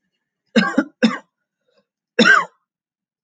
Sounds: Cough